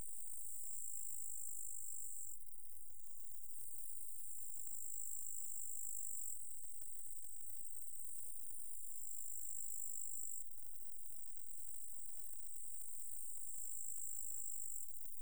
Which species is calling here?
Conocephalus fuscus